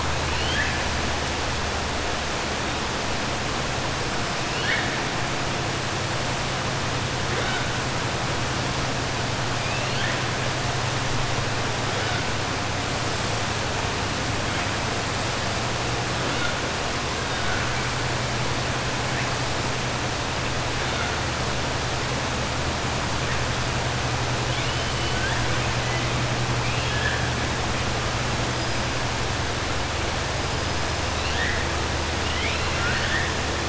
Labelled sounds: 0.2	0.8	killer whale, 1.5 to 4.5 kHz
4.4	4.9	killer whale, 1.5 to 4.4 kHz
24.9	25.4	killer whale, 0.91 to 3.1 kHz
26.6	27.2	killer whale, 1.6 to 3.4 kHz
31.1	31.6	killer whale, 1.7 to 4.5 kHz
32.2	33.3	killer whale, 1.4 to 4.4 kHz

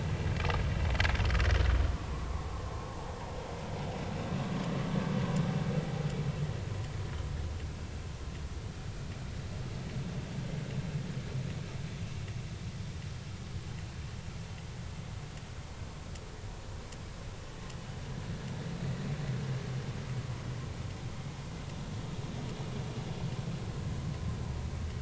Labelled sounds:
2.1	2.4	vessel noise, 0.99 to 1.2 kHz

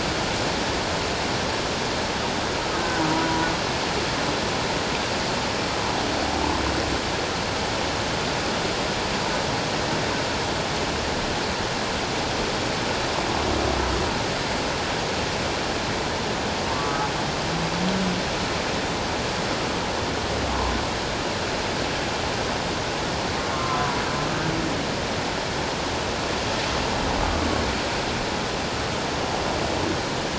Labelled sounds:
2.8	3.5	humpback whale, 0.91 to 1.6 kHz
16.7	17.0	humpback whale, 1.0 to 1.2 kHz
23.5	24.0	humpback whale, 0.91 to 1.4 kHz

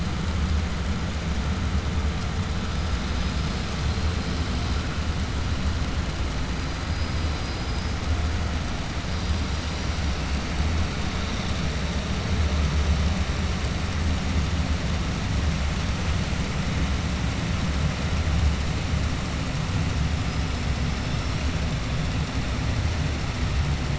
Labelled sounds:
3.1	3.8	killer whale, 4.2 to 6.4 kHz
7.3	7.9	killer whale, 4.0 to 5.4 kHz

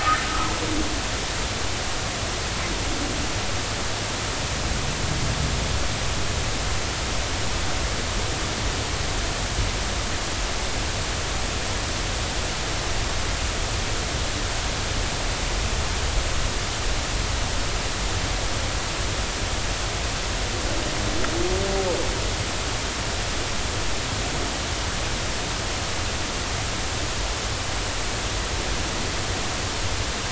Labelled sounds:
0.0	0.5	humpback whale, 0.93 to 1.6 kHz

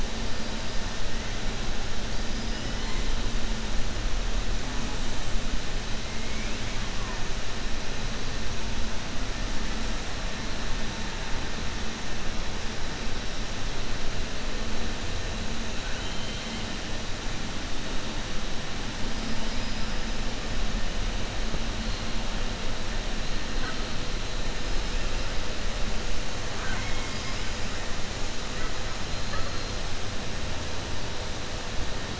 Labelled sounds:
15.8	16.6	killer whale, southern resident, 1.5 to 3.9 kHz
19.4	19.9	killer whale, southern resident, 4.4 to 5.8 kHz
26.5	27.5	killer whale, southern resident, 0.74 to 5.7 kHz

